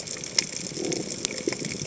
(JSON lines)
{"label": "biophony", "recorder": "HydroMoth"}